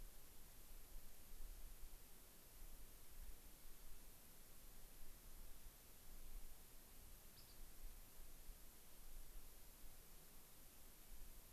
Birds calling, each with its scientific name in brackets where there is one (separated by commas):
unidentified bird